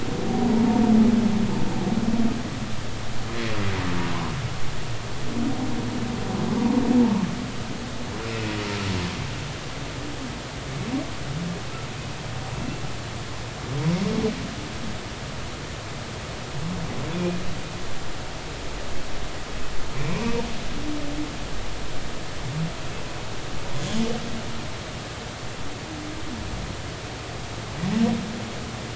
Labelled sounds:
17.1	17.4	humpback whale, 2.3 to 2.5 kHz
20.0	20.2	humpback whale, 2.2 to 2.5 kHz

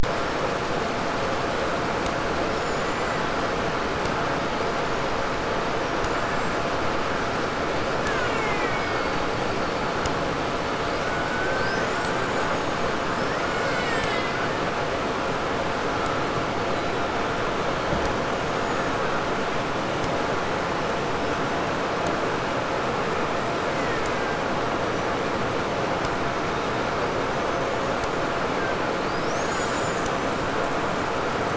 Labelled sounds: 2.5	3.5	killer whale, 1.5 to 7.5 kHz
5.7	6.8	killer whale, 5.4 to 8.0 kHz
7.8	10.4	killer whale, Bigg's (transient), 0.55 to 7.7 kHz
10.9	14.7	killer whale, 0.83 to 8.0 kHz
18.2	19.4	killer whale, 1.2 to 7.1 kHz
23.1	25.9	killer whale, 0.98 to 8.0 kHz
27.3	30.5	killer whale, 0.94 to 8.0 kHz

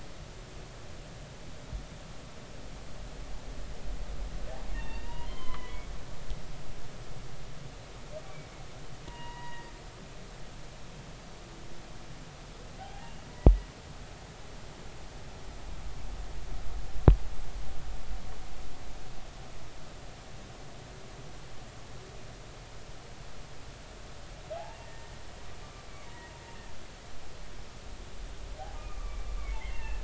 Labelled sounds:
4.7	5.8	humpback whale, 0.90 to 3.7 kHz
9.1	9.7	humpback whale, 0.90 to 3.9 kHz
12.8	13.3	humpback whale, 0.80 to 3.0 kHz
24.8	25.1	humpback whale, 1.8 to 1.9 kHz
26.0	26.3	humpback whale, 0.90 to 2.0 kHz
28.7	30.0	humpback whale, 1.1 to 2.8 kHz

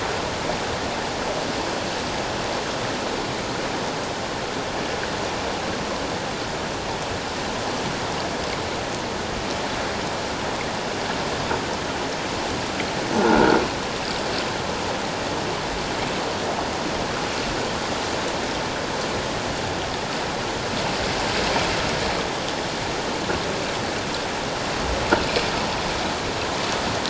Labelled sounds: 13.1	13.6	croaking sound likely from a nearby submerged object, 1.3 to 1.6 kHz

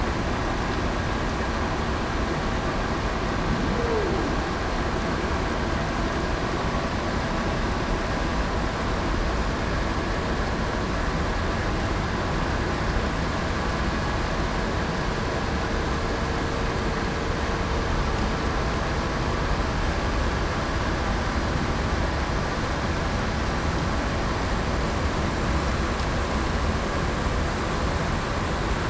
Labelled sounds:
3.7	4.1	humpback whale, 0.38 to 0.52 kHz

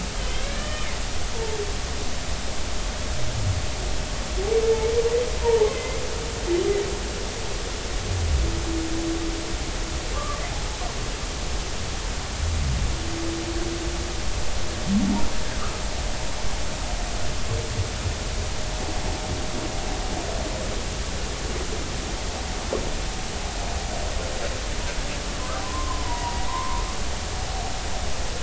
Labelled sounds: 0.2	0.9	humpback whale, 1.2 to 3.3 kHz
1.4	1.6	humpback whale, 0.83 to 0.96 kHz
5.4	6.0	humpback whale, 0.83 to 2.1 kHz
10.1	10.4	humpback whale, 1.0 to 1.3 kHz
25.6	26.8	humpback whale, 0.86 to 2.0 kHz

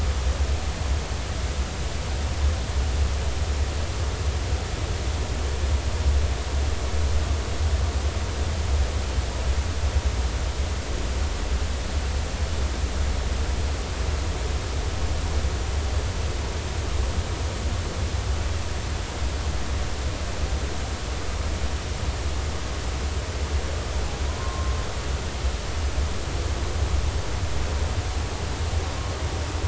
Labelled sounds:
24.3	24.8	humpback whale, 0.96 to 1.1 kHz

